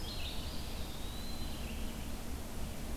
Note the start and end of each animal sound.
0.0s-3.0s: Red-eyed Vireo (Vireo olivaceus)
0.3s-1.7s: Eastern Wood-Pewee (Contopus virens)

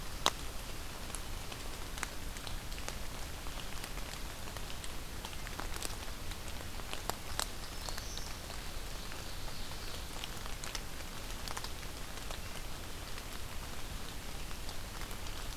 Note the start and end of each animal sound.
7.2s-8.4s: Black-throated Green Warbler (Setophaga virens)
8.7s-10.2s: Ovenbird (Seiurus aurocapilla)

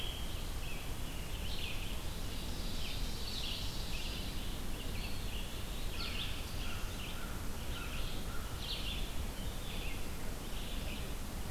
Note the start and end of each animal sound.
0.0s-0.5s: Rose-breasted Grosbeak (Pheucticus ludovicianus)
0.0s-11.5s: Red-eyed Vireo (Vireo olivaceus)
2.1s-4.5s: Ovenbird (Seiurus aurocapilla)
4.9s-5.9s: Eastern Wood-Pewee (Contopus virens)
5.9s-8.6s: American Crow (Corvus brachyrhynchos)

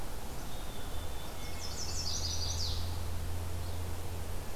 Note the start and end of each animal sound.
0.2s-1.8s: Black-capped Chickadee (Poecile atricapillus)
1.2s-2.2s: Hermit Thrush (Catharus guttatus)
1.2s-3.3s: Chestnut-sided Warbler (Setophaga pensylvanica)

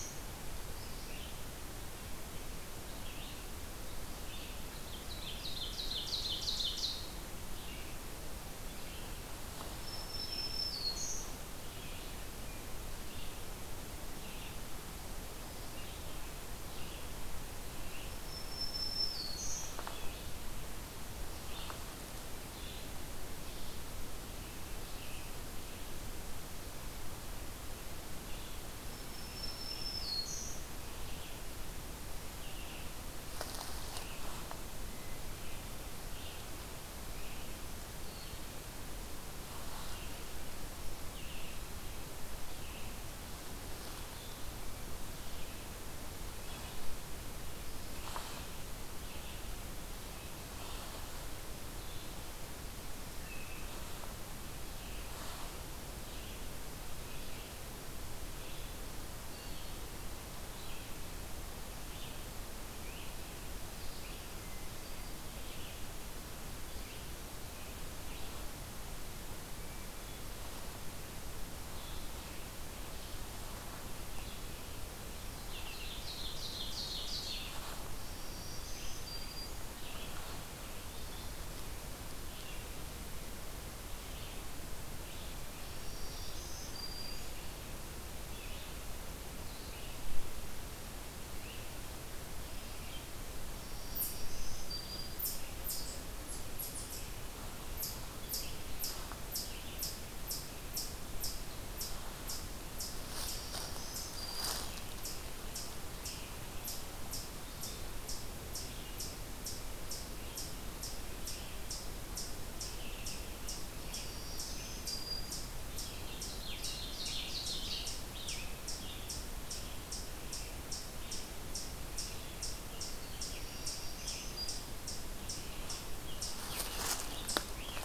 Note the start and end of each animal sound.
0.0s-30.1s: Red-eyed Vireo (Vireo olivaceus)
4.7s-7.2s: Ovenbird (Seiurus aurocapilla)
9.7s-11.5s: Black-throated Green Warbler (Setophaga virens)
18.1s-19.8s: Black-throated Green Warbler (Setophaga virens)
28.4s-30.7s: Black-throated Green Warbler (Setophaga virens)
31.0s-89.9s: Red-eyed Vireo (Vireo olivaceus)
75.4s-77.9s: Ovenbird (Seiurus aurocapilla)
77.9s-79.9s: Black-throated Green Warbler (Setophaga virens)
85.5s-87.5s: Black-throated Green Warbler (Setophaga virens)
91.0s-127.8s: Red-eyed Vireo (Vireo olivaceus)
93.4s-95.4s: Black-throated Green Warbler (Setophaga virens)
93.7s-127.8s: Eastern Chipmunk (Tamias striatus)
103.0s-104.8s: Black-throated Green Warbler (Setophaga virens)
112.5s-114.9s: Scarlet Tanager (Piranga olivacea)
113.9s-115.7s: Black-throated Green Warbler (Setophaga virens)
115.7s-119.1s: Scarlet Tanager (Piranga olivacea)
116.0s-118.1s: Ovenbird (Seiurus aurocapilla)
121.9s-124.4s: Scarlet Tanager (Piranga olivacea)
122.9s-125.2s: Black-throated Green Warbler (Setophaga virens)
125.9s-127.8s: Scarlet Tanager (Piranga olivacea)

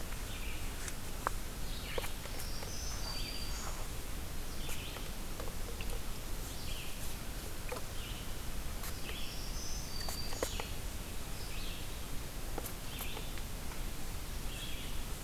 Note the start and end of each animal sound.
0.0s-15.2s: Red-eyed Vireo (Vireo olivaceus)
2.0s-4.2s: Black-throated Green Warbler (Setophaga virens)
8.9s-10.9s: Black-throated Green Warbler (Setophaga virens)

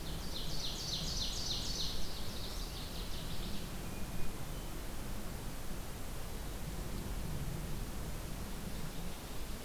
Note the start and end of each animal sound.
0.1s-2.1s: Ovenbird (Seiurus aurocapilla)
1.8s-3.6s: Northern Waterthrush (Parkesia noveboracensis)
3.7s-4.9s: Hermit Thrush (Catharus guttatus)

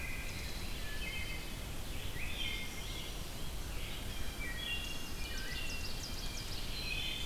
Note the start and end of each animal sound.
0.0s-1.6s: Wood Thrush (Hylocichla mustelina)
0.0s-7.3s: Red-eyed Vireo (Vireo olivaceus)
2.1s-2.9s: Wood Thrush (Hylocichla mustelina)
4.0s-4.4s: Blue Jay (Cyanocitta cristata)
4.4s-5.8s: Wood Thrush (Hylocichla mustelina)
4.7s-6.6s: Ovenbird (Seiurus aurocapilla)
5.7s-7.3s: Blue Jay (Cyanocitta cristata)

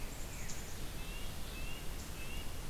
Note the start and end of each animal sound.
0.0s-0.9s: Black-capped Chickadee (Poecile atricapillus)
0.9s-2.5s: Red-breasted Nuthatch (Sitta canadensis)

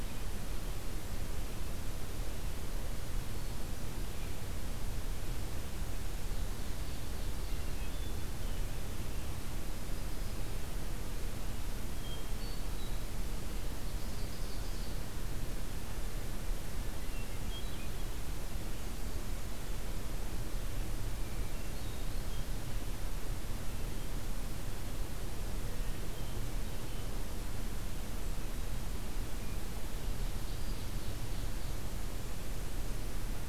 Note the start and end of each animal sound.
3.2s-4.2s: Hermit Thrush (Catharus guttatus)
6.0s-7.8s: Ovenbird (Seiurus aurocapilla)
7.7s-8.8s: Hermit Thrush (Catharus guttatus)
11.8s-13.2s: Hermit Thrush (Catharus guttatus)
13.5s-15.1s: Ovenbird (Seiurus aurocapilla)
17.0s-18.0s: Hermit Thrush (Catharus guttatus)
21.0s-22.6s: Hermit Thrush (Catharus guttatus)
25.7s-27.1s: Hermit Thrush (Catharus guttatus)
30.2s-31.9s: Ovenbird (Seiurus aurocapilla)

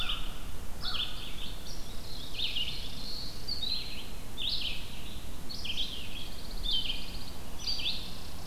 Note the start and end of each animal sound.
0.0s-1.2s: American Crow (Corvus brachyrhynchos)
0.0s-8.5s: Red-eyed Vireo (Vireo olivaceus)
1.9s-3.5s: Chipping Sparrow (Spizella passerina)
2.0s-3.5s: Black-throated Blue Warbler (Setophaga caerulescens)
6.1s-7.4s: Pine Warbler (Setophaga pinus)
7.7s-8.5s: Chipping Sparrow (Spizella passerina)

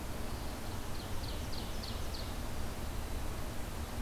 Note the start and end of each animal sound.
0.5s-2.4s: Ovenbird (Seiurus aurocapilla)

